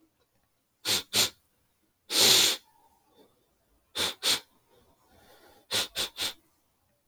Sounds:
Sniff